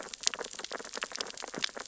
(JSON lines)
{"label": "biophony, sea urchins (Echinidae)", "recorder": "SoundTrap 600 or HydroMoth"}